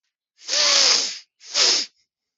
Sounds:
Sniff